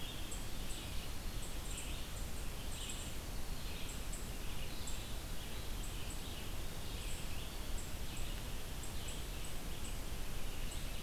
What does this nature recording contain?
Red-eyed Vireo, unidentified call